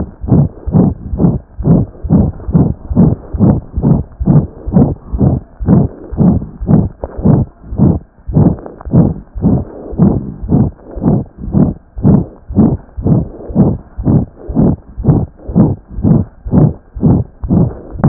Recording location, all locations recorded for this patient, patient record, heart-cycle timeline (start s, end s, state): aortic valve (AV)
aortic valve (AV)+mitral valve (MV)
#Age: Infant
#Sex: Female
#Height: 61.0 cm
#Weight: 2.3 kg
#Pregnancy status: False
#Murmur: Present
#Murmur locations: aortic valve (AV)+mitral valve (MV)
#Most audible location: aortic valve (AV)
#Systolic murmur timing: Holosystolic
#Systolic murmur shape: Diamond
#Systolic murmur grading: I/VI
#Systolic murmur pitch: High
#Systolic murmur quality: Harsh
#Diastolic murmur timing: nan
#Diastolic murmur shape: nan
#Diastolic murmur grading: nan
#Diastolic murmur pitch: nan
#Diastolic murmur quality: nan
#Outcome: Abnormal
#Campaign: 2015 screening campaign
0.00	0.20	unannotated
0.20	0.32	S1
0.32	0.40	systole
0.40	0.52	S2
0.52	0.64	diastole
0.64	0.75	S1
0.75	0.87	systole
0.87	0.97	S2
0.97	1.09	diastole
1.09	1.19	S1
1.19	1.33	systole
1.33	1.40	S2
1.40	1.56	diastole
1.56	1.68	S1
1.68	1.80	systole
1.80	1.87	S2
1.87	2.02	diastole
2.02	2.10	S1
2.10	2.25	systole
2.25	2.34	S2
2.34	2.46	diastole
2.46	2.54	S1
2.54	2.67	systole
2.67	2.74	S2
2.74	2.88	diastole
2.88	2.98	S1
2.98	3.09	systole
3.09	3.18	S2
3.18	3.32	diastole
3.32	3.41	S1
3.41	3.55	systole
3.55	3.62	S2
3.62	3.74	diastole
3.74	3.82	S1
3.82	3.96	systole
3.96	4.05	S2
4.05	4.19	diastole
4.19	4.28	S1
4.28	4.41	systole
4.41	4.49	S2
4.49	4.65	diastole
4.65	4.73	S1
4.73	4.87	systole
4.87	4.96	S2
4.96	5.10	diastole
5.10	5.21	S1
5.21	5.33	systole
5.33	5.44	S2
5.44	5.59	diastole
5.59	5.67	S1
5.67	18.08	unannotated